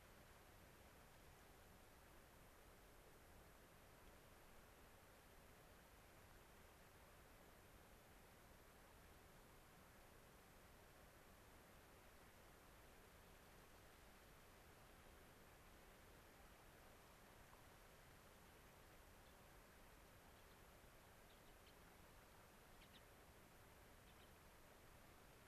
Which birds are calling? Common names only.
Gray-crowned Rosy-Finch